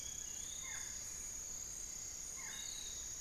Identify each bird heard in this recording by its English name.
Little Tinamou, Barred Forest-Falcon, Piratic Flycatcher, unidentified bird